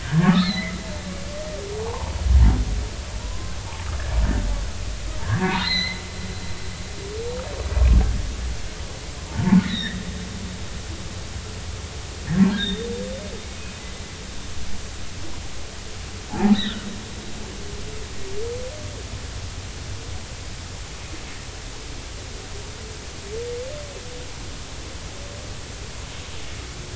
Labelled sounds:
0.0	0.8	humpback whale, 1.0 to 4.4 kHz
1.8	2.1	humpback whale, 0.80 to 1.2 kHz
3.2	3.5	humpback whale, 0.90 to 1.1 kHz
5.2	6.0	humpback whale, 1.5 to 4.3 kHz
9.6	10.7	humpback whale, 0.83 to 4.0 kHz
12.5	12.9	humpback whale, 1.3 to 3.9 kHz
16.3	16.8	humpback whale, 0.80 to 4.1 kHz

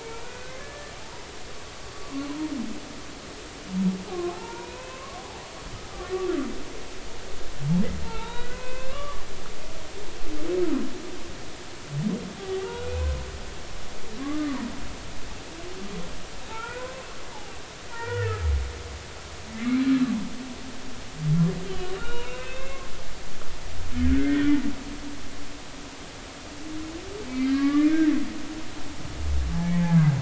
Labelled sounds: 0.0	1.3	humpback whale, 0.83 to 2.6 kHz
4.3	5.4	humpback whale, 0.80 to 2.7 kHz
8.0	9.2	humpback whale, 0.83 to 3.9 kHz
12.6	13.1	humpback whale, 1.3 to 2.6 kHz
14.2	14.6	humpback whale, 1.0 to 1.2 kHz
16.5	17.1	humpback whale, 0.83 to 2.6 kHz
17.9	18.4	humpback whale, 0.86 to 3.0 kHz
19.5	19.8	humpback whale, 2.0 to 2.4 kHz
21.6	24.5	humpback whale, 1.1 to 3.9 kHz
27.3	27.9	humpback whale, 1.1 to 2.3 kHz
29.7	30.0	humpback whale, 0.80 to 0.90 kHz

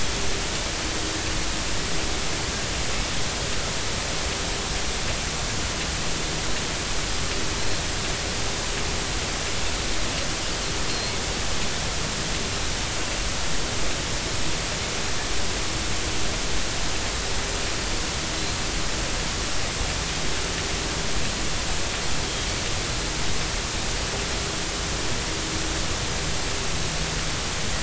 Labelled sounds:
7.6	7.8	Pacific white-sided dolphin, 4.0 to 4.3 kHz
10.9	11.1	Pacific white-sided dolphin, 4.1 to 4.3 kHz

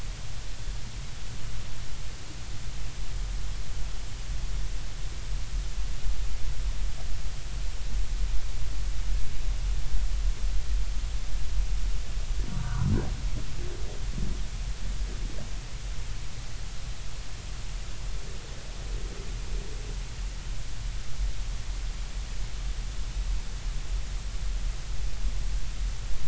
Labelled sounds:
12.5	12.9	humpback whale, 0.93 to 1.6 kHz

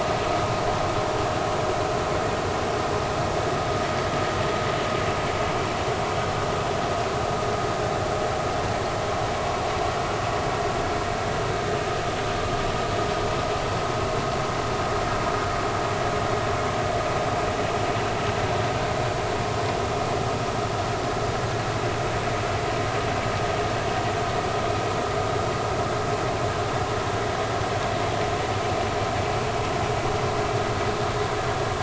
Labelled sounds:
11.7	12.0	vessel noise, 1.2 to 1.3 kHz

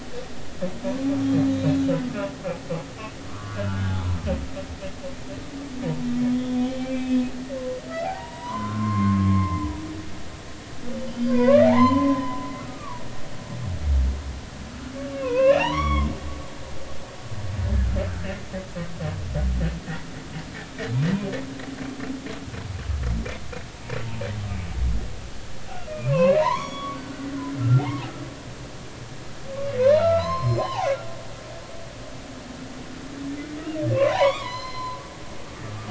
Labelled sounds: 1.3	1.9	humpback whale, 3.6 to 4.1 kHz
3.3	4.2	humpback whale, 0.80 to 3.7 kHz
6.3	7.2	humpback whale, 2.3 to 3.6 kHz
7.9	9.8	humpback whale, 0.80 to 4.7 kHz
10.9	13.0	humpback whale, 0.80 to 5.1 kHz
15.1	16.1	humpback whale, 0.80 to 5.7 kHz
25.9	28.1	humpback whale, 0.80 to 5.8 kHz
29.8	30.9	humpback whale, 0.80 to 5.3 kHz
33.9	35.0	humpback whale, 0.80 to 5.2 kHz
35.6	35.8	humpback whale, 1.2 to 1.3 kHz

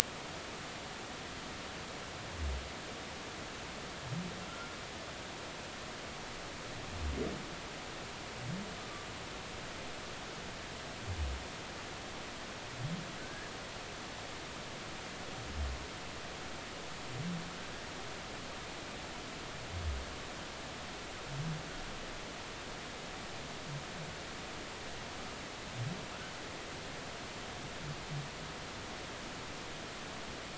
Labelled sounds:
13.2	13.5	humpback whale, 1.5 to 1.8 kHz

